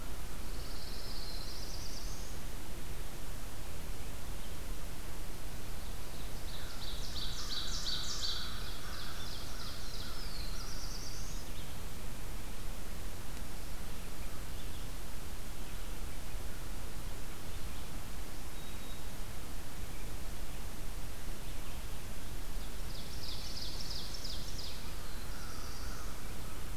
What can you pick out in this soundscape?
Pine Warbler, Black-throated Blue Warbler, Ovenbird, American Crow, Red-eyed Vireo, Black-throated Green Warbler